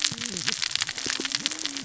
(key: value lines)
label: biophony, cascading saw
recorder: SoundTrap 600 or HydroMoth